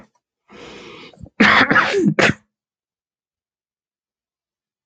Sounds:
Sneeze